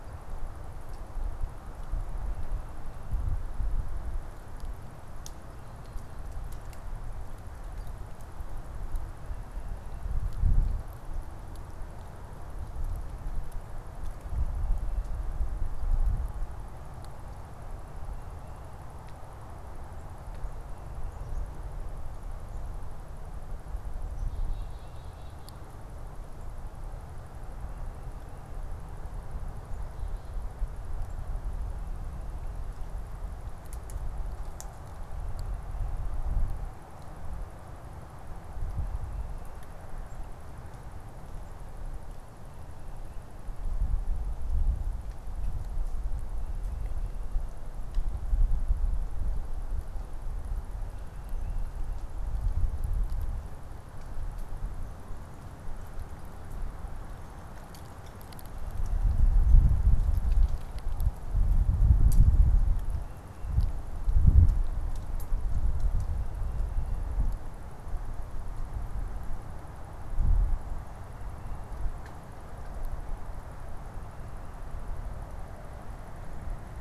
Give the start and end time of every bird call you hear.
24.0s-25.6s: Black-capped Chickadee (Poecile atricapillus)

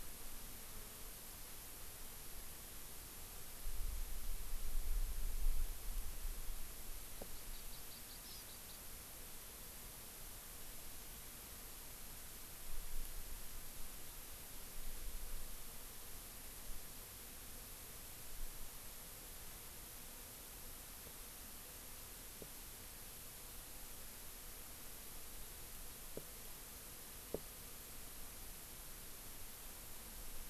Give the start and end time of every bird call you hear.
7.1s-8.9s: Hawaii Amakihi (Chlorodrepanis virens)

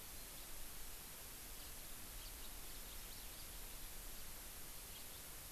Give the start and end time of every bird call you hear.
2.2s-3.5s: Hawaii Amakihi (Chlorodrepanis virens)
4.9s-5.0s: House Finch (Haemorhous mexicanus)

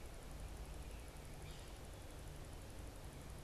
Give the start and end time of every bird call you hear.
1.2s-3.4s: Yellow-bellied Sapsucker (Sphyrapicus varius)

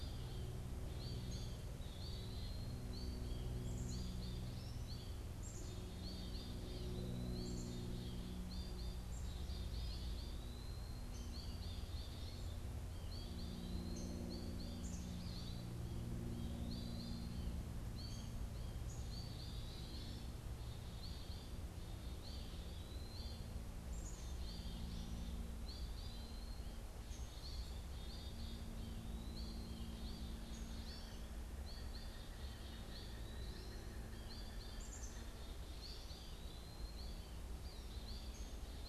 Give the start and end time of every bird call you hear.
0.0s-15.9s: Black-capped Chickadee (Poecile atricapillus)
0.0s-17.5s: Eastern Wood-Pewee (Contopus virens)
0.0s-18.5s: Downy Woodpecker (Dryobates pubescens)
0.0s-38.9s: American Goldfinch (Spinus tristis)
19.0s-38.9s: Eastern Wood-Pewee (Contopus virens)
23.5s-38.9s: Black-capped Chickadee (Poecile atricapillus)
30.2s-35.7s: Pileated Woodpecker (Dryocopus pileatus)

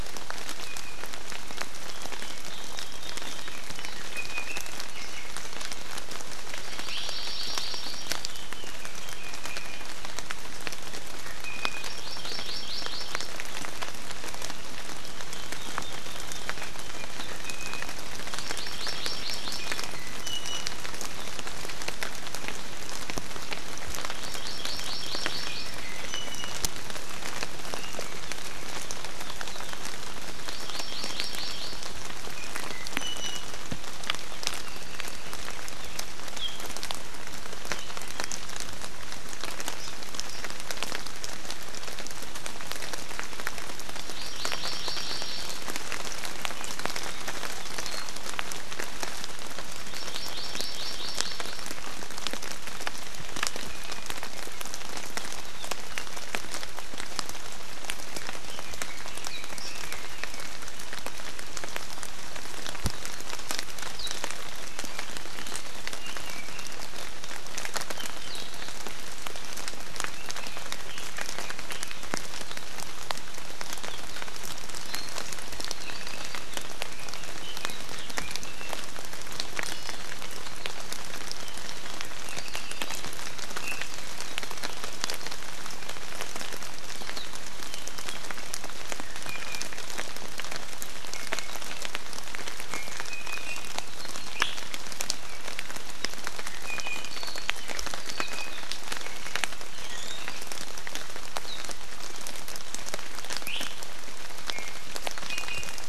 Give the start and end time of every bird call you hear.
3.7s-5.2s: Iiwi (Drepanis coccinea)
6.7s-8.2s: Hawaii Amakihi (Chlorodrepanis virens)
11.1s-11.8s: Iiwi (Drepanis coccinea)
11.8s-13.3s: Hawaii Amakihi (Chlorodrepanis virens)
17.4s-17.9s: Iiwi (Drepanis coccinea)
18.3s-19.8s: Hawaii Amakihi (Chlorodrepanis virens)
19.6s-20.8s: Iiwi (Drepanis coccinea)
24.2s-25.7s: Hawaii Amakihi (Chlorodrepanis virens)
25.8s-26.6s: Iiwi (Drepanis coccinea)
30.5s-31.8s: Hawaii Amakihi (Chlorodrepanis virens)
32.3s-33.5s: Iiwi (Drepanis coccinea)
34.6s-35.3s: Apapane (Himatione sanguinea)
44.1s-45.6s: Hawaii Amakihi (Chlorodrepanis virens)
49.9s-51.6s: Hawaii Amakihi (Chlorodrepanis virens)
58.1s-60.6s: Red-billed Leiothrix (Leiothrix lutea)
70.1s-72.2s: Red-billed Leiothrix (Leiothrix lutea)
75.8s-76.4s: Apapane (Himatione sanguinea)
76.8s-78.7s: Red-billed Leiothrix (Leiothrix lutea)
79.6s-80.0s: Iiwi (Drepanis coccinea)
82.2s-83.0s: Apapane (Himatione sanguinea)
83.6s-83.8s: Iiwi (Drepanis coccinea)
89.2s-89.6s: Iiwi (Drepanis coccinea)
91.1s-91.5s: Iiwi (Drepanis coccinea)
92.7s-93.7s: Iiwi (Drepanis coccinea)
94.3s-94.5s: Iiwi (Drepanis coccinea)
96.6s-97.1s: Iiwi (Drepanis coccinea)
98.0s-98.5s: Iiwi (Drepanis coccinea)
99.6s-100.2s: Iiwi (Drepanis coccinea)
103.4s-103.6s: Iiwi (Drepanis coccinea)
104.5s-104.7s: Iiwi (Drepanis coccinea)
105.3s-105.8s: Iiwi (Drepanis coccinea)

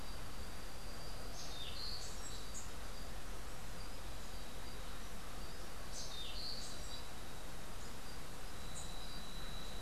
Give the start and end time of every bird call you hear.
1.5s-2.2s: Orange-billed Nightingale-Thrush (Catharus aurantiirostris)
2.5s-2.8s: Rufous-capped Warbler (Basileuterus rufifrons)
5.9s-6.6s: Orange-billed Nightingale-Thrush (Catharus aurantiirostris)
8.7s-9.0s: Rufous-capped Warbler (Basileuterus rufifrons)

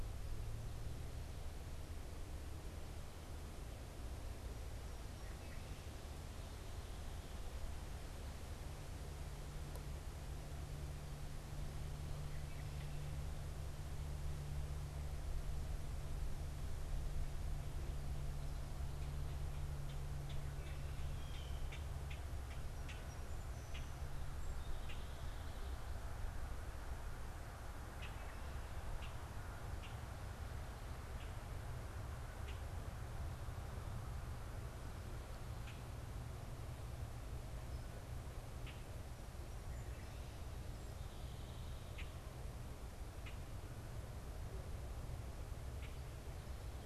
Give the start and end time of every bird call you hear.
19.5s-46.1s: Common Grackle (Quiscalus quiscula)
21.0s-21.9s: Blue Jay (Cyanocitta cristata)
21.6s-26.0s: Song Sparrow (Melospiza melodia)

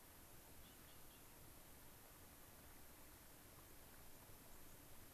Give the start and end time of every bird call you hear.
4.5s-4.7s: White-crowned Sparrow (Zonotrichia leucophrys)

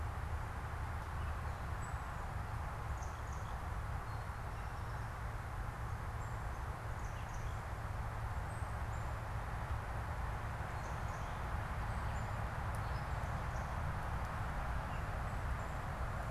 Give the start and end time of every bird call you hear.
1.6s-14.1s: Black-capped Chickadee (Poecile atricapillus)

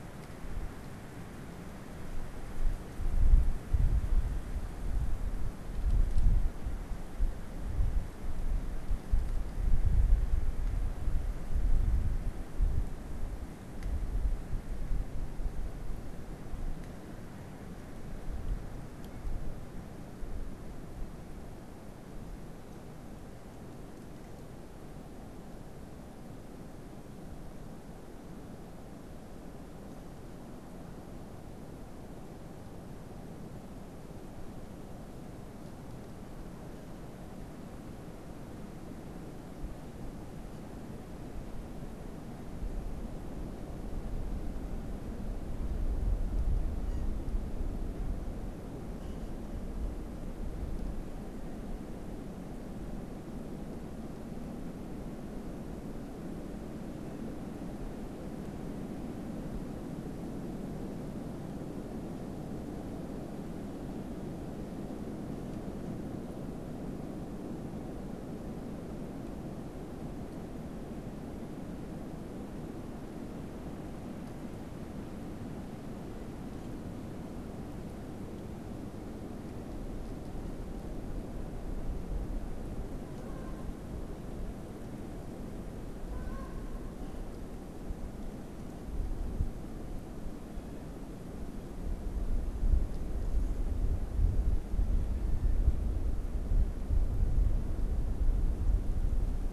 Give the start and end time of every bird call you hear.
83.0s-83.8s: Canada Goose (Branta canadensis)
86.0s-87.0s: Canada Goose (Branta canadensis)

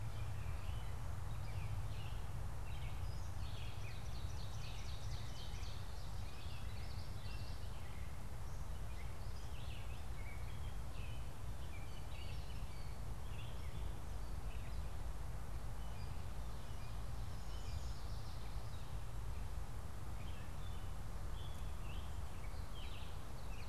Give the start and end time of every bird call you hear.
0.0s-23.7s: Red-eyed Vireo (Vireo olivaceus)
0.1s-23.7s: Gray Catbird (Dumetella carolinensis)
2.9s-6.1s: Ovenbird (Seiurus aurocapilla)
5.6s-7.9s: Common Yellowthroat (Geothlypis trichas)
17.1s-18.6s: Yellow Warbler (Setophaga petechia)
22.9s-23.7s: Ovenbird (Seiurus aurocapilla)

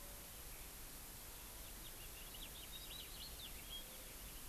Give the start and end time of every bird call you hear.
1.6s-3.9s: House Finch (Haemorhous mexicanus)

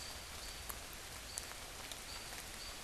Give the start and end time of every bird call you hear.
0.0s-2.8s: American Robin (Turdus migratorius)

